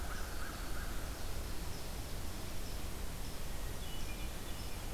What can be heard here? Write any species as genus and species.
Corvus brachyrhynchos, Setophaga virens, Catharus guttatus